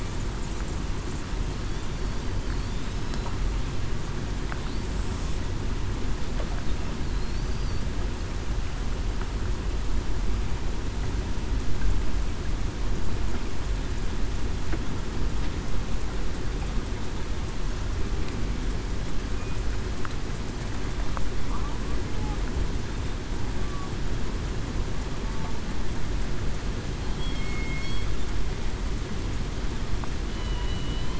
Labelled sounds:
7.4	7.8	killer whale, southern resident, 4.4 to 4.8 kHz
27.3	28.0	killer whale, southern resident, 2.1 to 2.2 kHz
30.3	31.1	killer whale, southern resident, 2.9 to 3.2 kHz

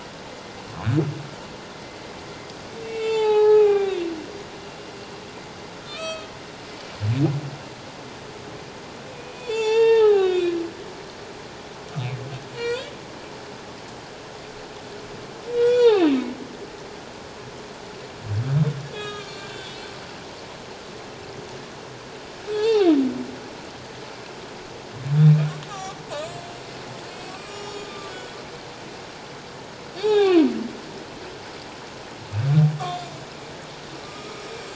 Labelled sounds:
2.8	4.0	humpback whale, 0.78 to 7.2 kHz
5.9	6.3	humpback whale, 1.2 to 5.8 kHz
9.1	10.5	humpback whale, 0.78 to 7.3 kHz
12.5	12.9	humpback whale, 0.91 to 4.9 kHz
15.5	16.3	humpback whale, 0.78 to 5.9 kHz
18.9	19.9	humpback whale, 1.1 to 4.4 kHz
22.5	23.0	humpback whale, 0.78 to 4.6 kHz
25.7	26.5	humpback whale, 0.78 to 8.0 kHz
27.3	28.4	humpback whale, 1.1 to 7.9 kHz
30.0	30.5	humpback whale, 0.78 to 3.9 kHz
34.0	34.7	humpback whale, 1.2 to 7.6 kHz

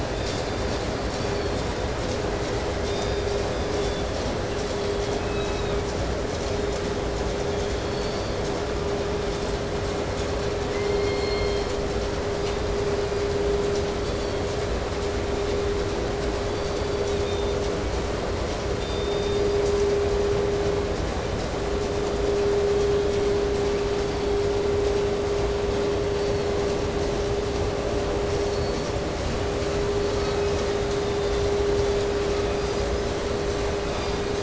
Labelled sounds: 0.0	0.9	killer whale, southern resident, 2.7 to 6.5 kHz
0.8	2.0	killer whale, 3.0 to 5.1 kHz
2.7	4.2	killer whale, 2.1 to 5.7 kHz
5.1	6.0	killer whale, southern resident, 1.0 to 4.5 kHz
7.4	8.6	killer whale, southern resident, 2.0 to 5.1 kHz
10.6	12.0	killer whale, southern resident, call S16, 1.6 to 4.6 kHz
12.3	13.5	killer whale, southern resident, call S17, 2.0 to 5.2 kHz
13.9	14.7	killer whale, southern resident, 2.6 to 6.1 kHz
16.3	17.8	killer whale, southern resident, 2.2 to 6.7 kHz
18.7	20.2	killer whale, southern resident, call S16, 3.1 to 5.5 kHz
22.7	23.5	killer whale, 1.9 to 4.7 kHz
23.8	24.6	killer whale, 2.5 to 4.8 kHz
25.7	26.6	killer whale, 2.1 to 4.8 kHz
28.1	29.2	killer whale, 3.7 to 4.9 kHz
29.7	33.2	killer whale, 0.94 to 6.1 kHz
33.7	34.4	killer whale, 0.97 to 5.1 kHz

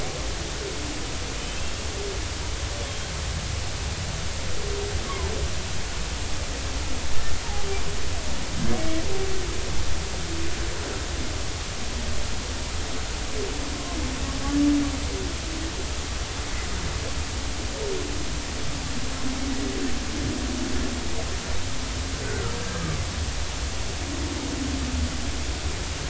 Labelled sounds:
1.4	1.6	humpback whale, 2.9 to 3.2 kHz
5.1	5.3	humpback whale, 0.83 to 1.2 kHz
7.1	7.4	humpback whale, 1.7 to 1.9 kHz
8.7	9.0	humpback whale, 2.0 to 2.3 kHz
22.2	22.6	humpback whale, 1.2 to 1.6 kHz

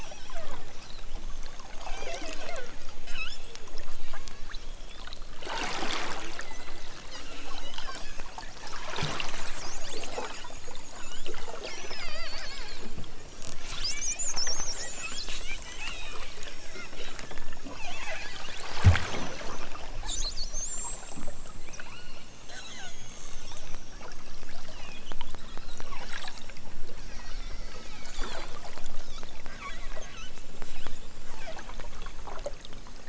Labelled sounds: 0.0	0.6	killer whale, southern Alaska resident, 2.2 to 6.0 kHz
1.8	2.7	killer whale, southern Alaska resident, 1.7 to 6.6 kHz
3.0	3.7	killer whale, southern Alaska resident, 1.0 to 8.0 kHz
4.2	5.2	killer whale, southern Alaska resident, 0.92 to 6.0 kHz
6.3	7.0	killer whale, southern Alaska resident, 1.7 to 5.3 kHz
7.2	8.3	killer whale, southern Alaska resident, 1.1 to 7.0 kHz
9.7	10.5	killer whale, southern Alaska resident, 1.9 to 5.2 kHz
10.9	12.6	killer whale, southern Alaska resident, 0.97 to 6.2 kHz
13.7	14.3	killer whale, southern Alaska resident, 1.1 to 4.2 kHz
15.7	16.3	killer whale, southern Alaska resident, 1.7 to 4.1 kHz
16.9	17.5	killer whale, southern Alaska resident, 0.97 to 4.2 kHz
21.8	23.0	killer whale, southern Alaska resident, 0.88 to 4.6 kHz
23.9	24.5	killer whale, southern Alaska resident, 1.9 to 5.3 kHz
27.0	27.7	killer whale, southern Alaska resident, 1.3 to 4.6 kHz

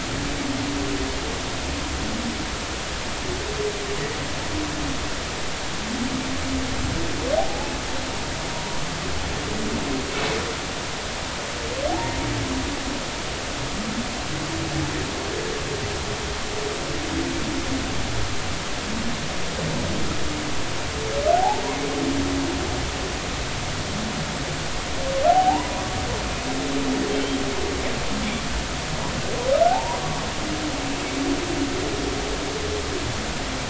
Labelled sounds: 7.4	8.8	humpback whale, 0.80 to 1.0 kHz
21.3	21.6	humpback whale, 0.80 to 0.96 kHz
25.3	26.0	humpback whale, 0.80 to 1.2 kHz
29.7	30.0	humpback whale, 0.80 to 1.0 kHz

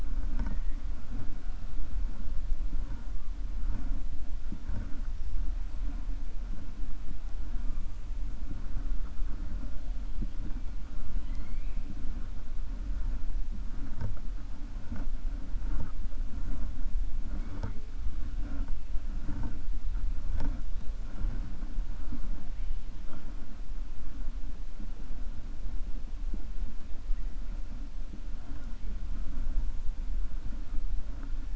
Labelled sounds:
11.1	11.8	killer whale, 1.4 to 5.9 kHz

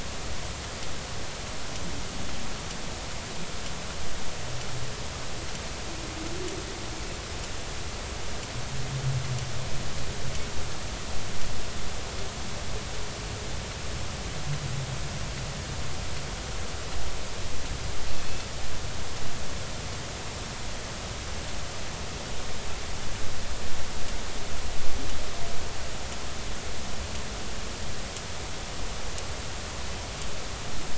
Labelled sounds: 18.1	18.5	Pacific white-sided dolphin, 2.5 to 2.7 kHz

